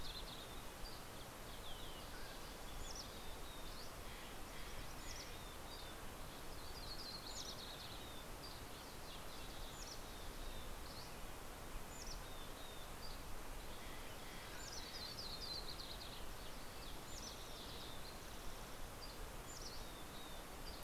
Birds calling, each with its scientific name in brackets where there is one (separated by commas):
Red-breasted Nuthatch (Sitta canadensis), Yellow-rumped Warbler (Setophaga coronata), Mountain Quail (Oreortyx pictus), Mountain Chickadee (Poecile gambeli), Steller's Jay (Cyanocitta stelleri), Dusky Flycatcher (Empidonax oberholseri), Green-tailed Towhee (Pipilo chlorurus)